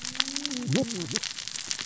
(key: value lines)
label: biophony, cascading saw
recorder: SoundTrap 600 or HydroMoth